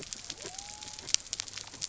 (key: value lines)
label: biophony
recorder: SoundTrap 300